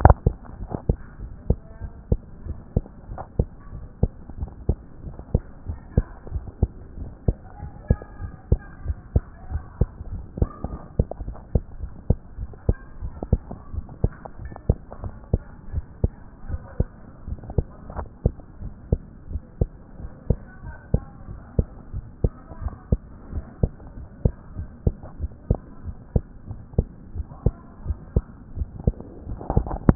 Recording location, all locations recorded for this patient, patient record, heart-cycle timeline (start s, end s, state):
tricuspid valve (TV)
aortic valve (AV)+pulmonary valve (PV)+tricuspid valve (TV)+mitral valve (MV)
#Age: Child
#Sex: Female
#Height: 128.0 cm
#Weight: 22.3 kg
#Pregnancy status: False
#Murmur: Absent
#Murmur locations: nan
#Most audible location: nan
#Systolic murmur timing: nan
#Systolic murmur shape: nan
#Systolic murmur grading: nan
#Systolic murmur pitch: nan
#Systolic murmur quality: nan
#Diastolic murmur timing: nan
#Diastolic murmur shape: nan
#Diastolic murmur grading: nan
#Diastolic murmur pitch: nan
#Diastolic murmur quality: nan
#Outcome: Normal
#Campaign: 2014 screening campaign
0.18	0.26	systole
0.26	0.36	S2
0.36	0.60	diastole
0.60	0.72	S1
0.72	0.88	systole
0.88	0.98	S2
0.98	1.22	diastole
1.22	1.32	S1
1.32	1.48	systole
1.48	1.58	S2
1.58	1.82	diastole
1.82	1.92	S1
1.92	2.10	systole
2.10	2.20	S2
2.20	2.46	diastole
2.46	2.58	S1
2.58	2.74	systole
2.74	2.84	S2
2.84	3.10	diastole
3.10	3.22	S1
3.22	3.38	systole
3.38	3.48	S2
3.48	3.74	diastole
3.74	3.86	S1
3.86	4.02	systole
4.02	4.12	S2
4.12	4.38	diastole
4.38	4.50	S1
4.50	4.68	systole
4.68	4.78	S2
4.78	5.04	diastole
5.04	5.16	S1
5.16	5.32	systole
5.32	5.42	S2
5.42	5.68	diastole
5.68	5.80	S1
5.80	5.96	systole
5.96	6.06	S2
6.06	6.32	diastole
6.32	6.44	S1
6.44	6.60	systole
6.60	6.70	S2
6.70	6.98	diastole
6.98	7.10	S1
7.10	7.26	systole
7.26	7.36	S2
7.36	7.62	diastole
7.62	7.72	S1
7.72	7.88	systole
7.88	7.98	S2
7.98	8.22	diastole
8.22	8.34	S1
8.34	8.50	systole
8.50	8.60	S2
8.60	8.84	diastole
8.84	8.98	S1
8.98	9.14	systole
9.14	9.24	S2
9.24	9.50	diastole
9.50	9.64	S1
9.64	9.80	systole
9.80	9.90	S2
9.90	10.10	diastole
10.10	10.24	S1
10.24	10.38	systole
10.38	10.50	S2
10.50	10.72	diastole
10.72	10.82	S1
10.82	10.98	systole
10.98	11.06	S2
11.06	11.26	diastole
11.26	11.36	S1
11.36	11.54	systole
11.54	11.64	S2
11.64	11.82	diastole
11.82	11.92	S1
11.92	12.08	systole
12.08	12.18	S2
12.18	12.40	diastole
12.40	12.50	S1
12.50	12.66	systole
12.66	12.76	S2
12.76	13.02	diastole
13.02	13.14	S1
13.14	13.30	systole
13.30	13.42	S2
13.42	13.72	diastole
13.72	13.84	S1
13.84	14.02	systole
14.02	14.12	S2
14.12	14.40	diastole
14.40	14.52	S1
14.52	14.68	systole
14.68	14.78	S2
14.78	15.02	diastole
15.02	15.14	S1
15.14	15.32	systole
15.32	15.44	S2
15.44	15.72	diastole
15.72	15.84	S1
15.84	16.02	systole
16.02	16.14	S2
16.14	16.46	diastole
16.46	16.60	S1
16.60	16.78	systole
16.78	16.90	S2
16.90	17.24	diastole
17.24	17.38	S1
17.38	17.56	systole
17.56	17.66	S2
17.66	17.94	diastole
17.94	18.08	S1
18.08	18.26	systole
18.26	18.36	S2
18.36	18.62	diastole
18.62	18.74	S1
18.74	18.90	systole
18.90	19.02	S2
19.02	19.30	diastole
19.30	19.42	S1
19.42	19.60	systole
19.60	19.70	S2
19.70	19.98	diastole
19.98	20.10	S1
20.10	20.26	systole
20.26	20.38	S2
20.38	20.64	diastole
20.64	20.76	S1
20.76	20.92	systole
20.92	21.02	S2
21.02	21.28	diastole
21.28	21.40	S1
21.40	21.56	systole
21.56	21.68	S2
21.68	21.94	diastole
21.94	22.06	S1
22.06	22.22	systole
22.22	22.32	S2
22.32	22.60	diastole
22.60	22.74	S1
22.74	22.90	systole
22.90	23.02	S2
23.02	23.32	diastole
23.32	23.44	S1
23.44	23.62	systole
23.62	23.72	S2
23.72	23.98	diastole
23.98	24.08	S1
24.08	24.24	systole
24.24	24.34	S2
24.34	24.56	diastole
24.56	24.68	S1
24.68	24.84	systole
24.84	24.94	S2
24.94	25.20	diastole
25.20	25.30	S1
25.30	25.48	systole
25.48	25.60	S2
25.60	25.86	diastole
25.86	25.96	S1
25.96	26.14	systole
26.14	26.24	S2
26.24	26.50	diastole
26.50	26.60	S1
26.60	26.76	systole
26.76	26.88	S2
26.88	27.14	diastole
27.14	27.26	S1
27.26	27.44	systole
27.44	27.56	S2
27.56	27.84	diastole
27.84	27.98	S1
27.98	28.14	systole
28.14	28.26	S2
28.26	28.56	diastole
28.56	28.68	S1
28.68	28.86	systole
28.86	28.98	S2
28.98	29.26	diastole
29.26	29.40	S1
29.40	29.54	systole
29.54	29.68	S2
29.68	29.86	diastole
29.86	29.95	S1